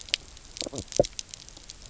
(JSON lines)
{"label": "biophony, knock croak", "recorder": "SoundTrap 300"}